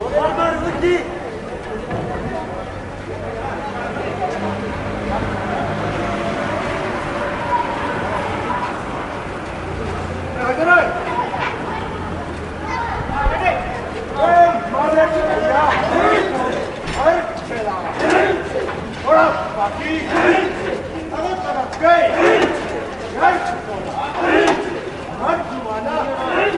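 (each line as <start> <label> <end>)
0.0 A man is shouting loudly from a distance. 1.3
0.0 Distant loud chatter. 26.6
3.4 A car drives by loudly. 9.5
10.2 A man is shouting loudly from a distance. 11.3
13.0 Men shouting loudly in the distance. 26.6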